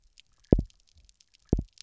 {"label": "biophony, double pulse", "recorder": "SoundTrap 300"}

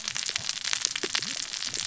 {"label": "biophony, cascading saw", "recorder": "SoundTrap 600 or HydroMoth"}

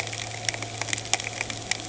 {"label": "anthrophony, boat engine", "recorder": "HydroMoth"}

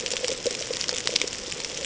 {"label": "ambient", "recorder": "HydroMoth"}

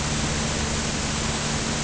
{"label": "anthrophony, boat engine", "recorder": "HydroMoth"}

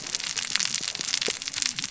{"label": "biophony, cascading saw", "recorder": "SoundTrap 600 or HydroMoth"}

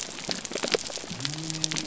{"label": "biophony", "recorder": "SoundTrap 300"}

